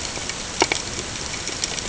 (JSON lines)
{"label": "ambient", "recorder": "HydroMoth"}